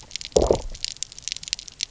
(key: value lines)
label: biophony, low growl
recorder: SoundTrap 300